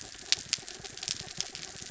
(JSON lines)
{"label": "anthrophony, mechanical", "recorder": "SoundTrap 300"}